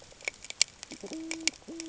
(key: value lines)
label: ambient
recorder: HydroMoth